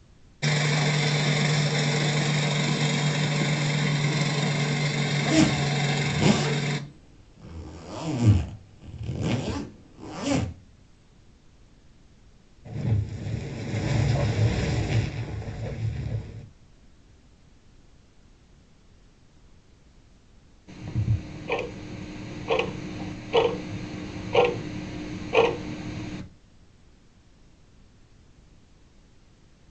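A faint continuous noise runs about 30 dB below the sounds. At 0.4 seconds, the sound of a lawn mower is heard. Over it, at 5.2 seconds, the sound of a zipper is audible. Then, at 12.6 seconds, fire can be heard. Finally, at 20.7 seconds, you can hear a tick-tock.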